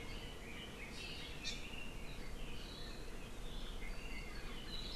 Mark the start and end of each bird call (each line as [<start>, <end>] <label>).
[1.40, 1.50] Hawaii Amakihi (Chlorodrepanis virens)